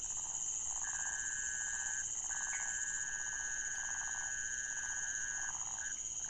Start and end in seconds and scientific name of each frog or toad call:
0.0	6.2	Phyllomedusa sauvagii
2.5	2.7	Pithecopus azureus